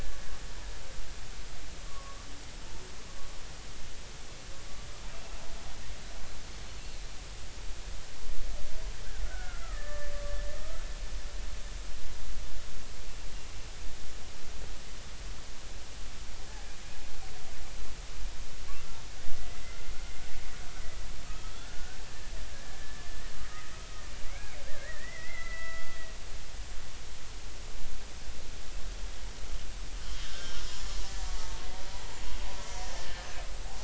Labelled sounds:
1.9	2.3	killer whale, Bigg's (transient), 0.99 to 1.2 kHz
9.2	10.1	killer whale, Bigg's (transient), 1.1 to 2.1 kHz
19.4	19.6	killer whale, Bigg's (transient), 1.9 to 2.1 kHz
21.3	22.0	killer whale, Bigg's (transient), 1.2 to 1.6 kHz
22.5	23.8	killer whale, Bigg's (transient), 1.6 to 2.1 kHz
24.3	26.0	killer whale, Bigg's (transient), 1.3 to 2.5 kHz
30.0	30.6	killer whale, Bigg's (transient), 1.5 to 3.3 kHz
31.3	31.6	killer whale, Bigg's (transient), 0.86 to 0.96 kHz
32.6	33.3	killer whale, Bigg's (transient), 1.7 to 2.1 kHz

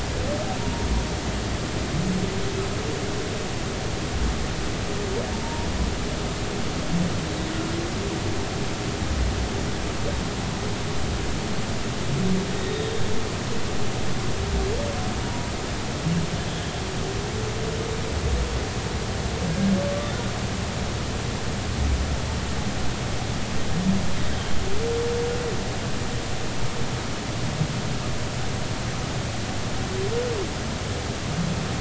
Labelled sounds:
0.6	0.9	humpback whale, 0.90 to 0.99 kHz
5.3	5.7	humpback whale, 0.83 to 1.0 kHz
12.6	12.9	humpback whale, 3.6 to 3.8 kHz
15.2	15.5	humpback whale, 0.93 to 0.99 kHz

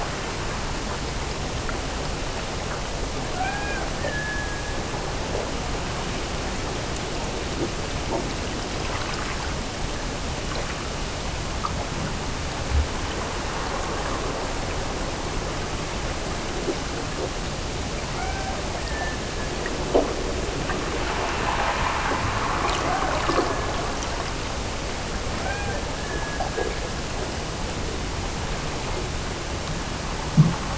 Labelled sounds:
3.3	5.3	killer whale, Bigg's (transient), Gulf of Alaska transient, 0.55 to 2.5 kHz
18.1	19.8	killer whale, Bigg's (transient), Gulf of Alaska transient, 0.53 to 2.4 kHz
25.3	27.0	killer whale, Bigg's (transient), Gulf of Alaska transient, 0.55 to 2.5 kHz

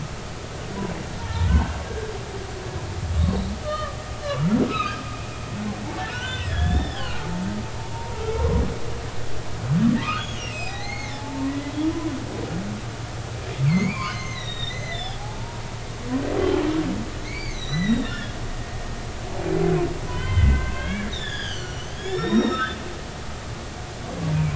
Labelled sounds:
1.2	2.1	humpback whale, 0.86 to 1.7 kHz
3.6	4.0	humpback whale, 1.1 to 1.9 kHz
4.7	5.0	humpback whale, 1.2 to 2.8 kHz
6.1	7.5	humpback whale, 0.83 to 5.5 kHz
7.9	8.2	humpback whale, 0.86 to 0.99 kHz
10.0	11.5	humpback whale, 0.80 to 6.8 kHz
13.6	15.6	humpback whale, 0.80 to 6.4 kHz
17.2	18.4	humpback whale, 1.6 to 6.4 kHz
20.1	22.8	humpback whale, 0.93 to 7.1 kHz

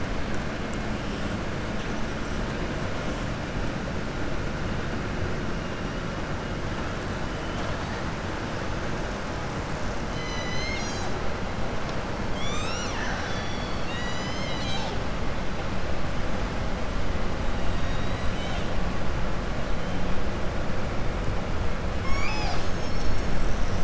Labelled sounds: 17.6	18.7	killer whale, southern resident, 2.3 to 7.5 kHz

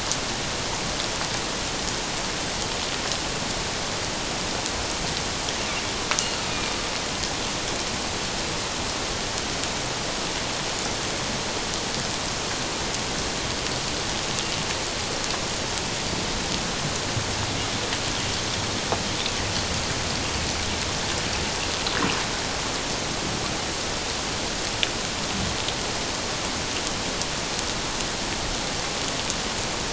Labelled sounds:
6.5	6.7	killer whale, northern resident, A clan, AA subclan, 2.3 to 2.5 kHz

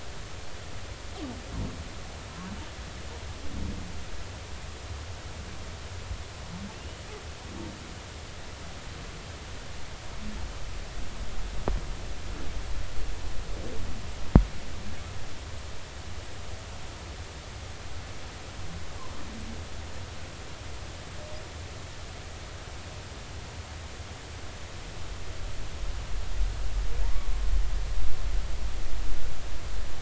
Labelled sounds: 6.7	7.0	humpback whale, 2.6 to 3.0 kHz

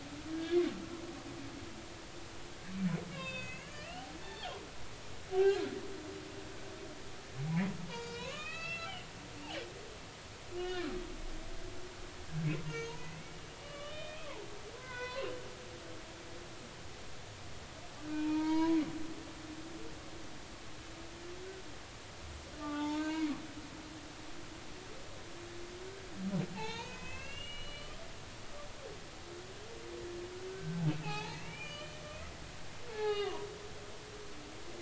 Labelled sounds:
0.3	0.6	humpback whale, 1.6 to 1.8 kHz
3.1	3.9	humpback whale, 1.6 to 6.8 kHz
4.2	4.6	humpback whale, 0.80 to 3.6 kHz
5.3	5.7	humpback whale, 0.80 to 3.3 kHz
7.9	8.9	humpback whale, 0.86 to 6.1 kHz
10.6	10.9	humpback whale, 1.6 to 3.0 kHz
12.7	14.5	humpback whale, 0.83 to 6.6 kHz
14.7	15.3	humpback whale, 0.93 to 4.3 kHz
18.1	18.8	humpback whale, 0.86 to 4.3 kHz
22.6	23.3	humpback whale, 0.83 to 4.2 kHz
26.6	28.0	humpback whale, 0.80 to 6.6 kHz
30.5	32.0	humpback whale, 0.80 to 3.1 kHz
32.9	33.5	humpback whale, 0.80 to 4.7 kHz

